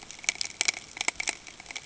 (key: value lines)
label: ambient
recorder: HydroMoth